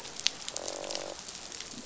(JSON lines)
{"label": "biophony, croak", "recorder": "SoundTrap 500"}